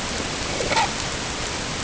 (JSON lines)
{"label": "ambient", "recorder": "HydroMoth"}